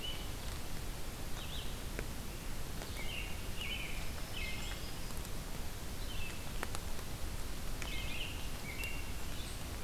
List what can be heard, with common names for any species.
Ovenbird, Red-eyed Vireo, American Robin, Black-throated Green Warbler